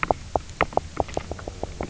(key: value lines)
label: biophony, knock croak
recorder: SoundTrap 300